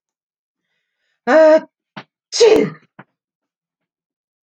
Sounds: Sneeze